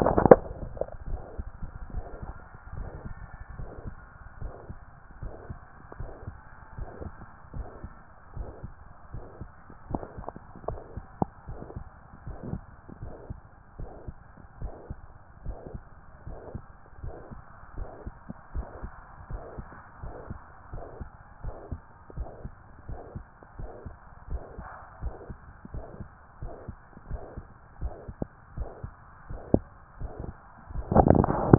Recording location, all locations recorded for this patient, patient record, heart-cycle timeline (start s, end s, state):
tricuspid valve (TV)
aortic valve (AV)+pulmonary valve (PV)+tricuspid valve (TV)+mitral valve (MV)
#Age: Adolescent
#Sex: Male
#Height: 180.0 cm
#Weight: 103.3 kg
#Pregnancy status: False
#Murmur: Present
#Murmur locations: mitral valve (MV)+pulmonary valve (PV)+tricuspid valve (TV)
#Most audible location: tricuspid valve (TV)
#Systolic murmur timing: Holosystolic
#Systolic murmur shape: Plateau
#Systolic murmur grading: I/VI
#Systolic murmur pitch: Low
#Systolic murmur quality: Blowing
#Diastolic murmur timing: nan
#Diastolic murmur shape: nan
#Diastolic murmur grading: nan
#Diastolic murmur pitch: nan
#Diastolic murmur quality: nan
#Outcome: Abnormal
#Campaign: 2014 screening campaign
0.00	1.08	unannotated
1.08	1.22	S1
1.22	1.38	systole
1.38	1.48	S2
1.48	1.92	diastole
1.92	2.04	S1
2.04	2.24	systole
2.24	2.34	S2
2.34	2.76	diastole
2.76	2.88	S1
2.88	3.04	systole
3.04	3.14	S2
3.14	3.58	diastole
3.58	3.70	S1
3.70	3.84	systole
3.84	3.96	S2
3.96	4.40	diastole
4.40	4.52	S1
4.52	4.68	systole
4.68	4.78	S2
4.78	5.22	diastole
5.22	5.34	S1
5.34	5.48	systole
5.48	5.58	S2
5.58	5.98	diastole
5.98	6.10	S1
6.10	6.26	systole
6.26	6.36	S2
6.36	6.76	diastole
6.76	6.88	S1
6.88	7.02	systole
7.02	7.14	S2
7.14	7.54	diastole
7.54	7.66	S1
7.66	7.82	systole
7.82	7.92	S2
7.92	8.36	diastole
8.36	8.48	S1
8.48	8.64	systole
8.64	8.72	S2
8.72	9.12	diastole
9.12	9.24	S1
9.24	9.40	systole
9.40	9.50	S2
9.50	9.90	diastole
9.90	10.02	S1
10.02	10.18	systole
10.18	10.26	S2
10.26	10.68	diastole
10.68	10.80	S1
10.80	10.96	systole
10.96	11.06	S2
11.06	11.48	diastole
11.48	11.60	S1
11.60	11.76	systole
11.76	11.84	S2
11.84	12.26	diastole
12.26	12.38	S1
12.38	12.50	systole
12.50	12.62	S2
12.62	13.00	diastole
13.00	13.12	S1
13.12	13.28	systole
13.28	13.38	S2
13.38	13.78	diastole
13.78	13.90	S1
13.90	14.06	systole
14.06	14.16	S2
14.16	14.60	diastole
14.60	14.72	S1
14.72	14.88	systole
14.88	14.98	S2
14.98	15.46	diastole
15.46	15.58	S1
15.58	15.74	systole
15.74	15.82	S2
15.82	16.26	diastole
16.26	16.38	S1
16.38	16.54	systole
16.54	16.64	S2
16.64	17.02	diastole
17.02	17.14	S1
17.14	17.32	systole
17.32	17.40	S2
17.40	17.76	diastole
17.76	17.88	S1
17.88	18.04	systole
18.04	18.14	S2
18.14	18.54	diastole
18.54	18.66	S1
18.66	18.82	systole
18.82	18.92	S2
18.92	19.30	diastole
19.30	19.42	S1
19.42	19.58	systole
19.58	19.66	S2
19.66	20.02	diastole
20.02	20.14	S1
20.14	20.28	systole
20.28	20.38	S2
20.38	20.72	diastole
20.72	20.84	S1
20.84	21.00	systole
21.00	21.10	S2
21.10	21.44	diastole
21.44	21.56	S1
21.56	21.70	systole
21.70	21.80	S2
21.80	22.16	diastole
22.16	22.28	S1
22.28	22.44	systole
22.44	22.52	S2
22.52	22.88	diastole
22.88	23.00	S1
23.00	23.14	systole
23.14	23.24	S2
23.24	23.58	diastole
23.58	23.70	S1
23.70	23.86	systole
23.86	23.96	S2
23.96	24.30	diastole
24.30	24.42	S1
24.42	24.58	systole
24.58	24.66	S2
24.66	25.02	diastole
25.02	25.14	S1
25.14	25.28	systole
25.28	25.38	S2
25.38	25.74	diastole
25.74	25.86	S1
25.86	26.00	systole
26.00	26.08	S2
26.08	26.42	diastole
26.42	26.54	S1
26.54	26.68	systole
26.68	26.76	S2
26.76	27.10	diastole
27.10	27.22	S1
27.22	27.36	systole
27.36	27.46	S2
27.46	27.80	diastole
27.80	27.94	S1
27.94	28.10	systole
28.10	28.16	S2
28.16	28.56	diastole
28.56	28.70	S1
28.70	28.84	systole
28.84	28.92	S2
28.92	29.30	diastole
29.30	29.42	S1
29.42	29.54	systole
29.54	29.64	S2
29.64	30.00	diastole
30.00	30.12	S1
30.12	30.24	systole
30.24	30.34	S2
30.34	30.74	diastole
30.74	31.58	unannotated